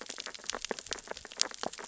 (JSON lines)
{"label": "biophony, sea urchins (Echinidae)", "recorder": "SoundTrap 600 or HydroMoth"}